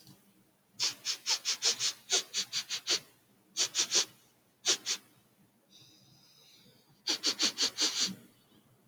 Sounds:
Sniff